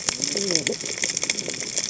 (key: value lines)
label: biophony, cascading saw
recorder: HydroMoth